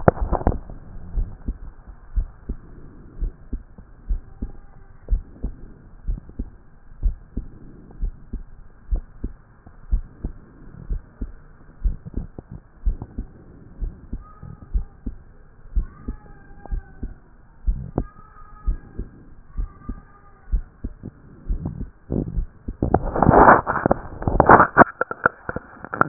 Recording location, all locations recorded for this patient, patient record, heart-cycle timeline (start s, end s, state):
pulmonary valve (PV)
aortic valve (AV)+pulmonary valve (PV)+tricuspid valve (TV)+mitral valve (MV)
#Age: Adolescent
#Sex: Male
#Height: 166.0 cm
#Weight: 62.7 kg
#Pregnancy status: False
#Murmur: Absent
#Murmur locations: nan
#Most audible location: nan
#Systolic murmur timing: nan
#Systolic murmur shape: nan
#Systolic murmur grading: nan
#Systolic murmur pitch: nan
#Systolic murmur quality: nan
#Diastolic murmur timing: nan
#Diastolic murmur shape: nan
#Diastolic murmur grading: nan
#Diastolic murmur pitch: nan
#Diastolic murmur quality: nan
#Outcome: Abnormal
#Campaign: 2014 screening campaign
0.00	1.14	unannotated
1.14	1.28	S1
1.28	1.46	systole
1.46	1.56	S2
1.56	2.16	diastole
2.16	2.28	S1
2.28	2.48	systole
2.48	2.58	S2
2.58	3.20	diastole
3.20	3.32	S1
3.32	3.52	systole
3.52	3.62	S2
3.62	4.08	diastole
4.08	4.22	S1
4.22	4.42	systole
4.42	4.50	S2
4.50	5.10	diastole
5.10	5.24	S1
5.24	5.42	systole
5.42	5.52	S2
5.52	6.08	diastole
6.08	6.20	S1
6.20	6.38	systole
6.38	6.48	S2
6.48	7.02	diastole
7.02	7.16	S1
7.16	7.36	systole
7.36	7.46	S2
7.46	8.00	diastole
8.00	8.14	S1
8.14	8.32	systole
8.32	8.42	S2
8.42	8.90	diastole
8.90	9.04	S1
9.04	9.22	systole
9.22	9.32	S2
9.32	9.90	diastole
9.90	10.04	S1
10.04	10.24	systole
10.24	10.32	S2
10.32	10.88	diastole
10.88	11.02	S1
11.02	11.20	systole
11.20	11.30	S2
11.30	11.84	diastole
11.84	11.96	S1
11.96	12.16	systole
12.16	12.26	S2
12.26	12.86	diastole
12.86	12.98	S1
12.98	13.18	systole
13.18	13.26	S2
13.26	13.80	diastole
13.80	13.92	S1
13.92	14.12	systole
14.12	14.22	S2
14.22	14.74	diastole
14.74	14.86	S1
14.86	15.06	systole
15.06	15.14	S2
15.14	15.74	diastole
15.74	15.88	S1
15.88	16.08	systole
16.08	16.16	S2
16.16	16.70	diastole
16.70	16.82	S1
16.82	17.02	systole
17.02	17.12	S2
17.12	17.66	diastole
17.66	17.80	S1
17.80	17.98	systole
17.98	18.08	S2
18.08	18.66	diastole
18.66	18.78	S1
18.78	18.98	systole
18.98	19.06	S2
19.06	19.58	diastole
19.58	19.70	S1
19.70	19.88	systole
19.88	19.98	S2
19.98	20.52	diastole
20.52	20.64	S1
20.64	20.84	systole
20.84	20.92	S2
20.92	21.48	diastole
21.48	26.08	unannotated